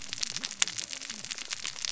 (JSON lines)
{"label": "biophony, cascading saw", "recorder": "SoundTrap 600 or HydroMoth"}